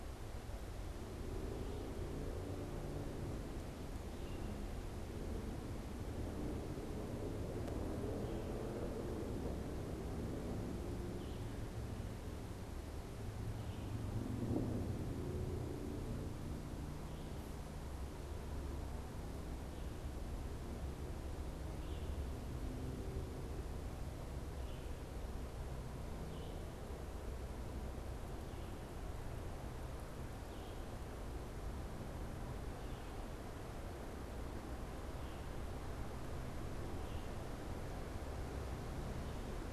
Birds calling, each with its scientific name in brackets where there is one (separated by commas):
Red-eyed Vireo (Vireo olivaceus)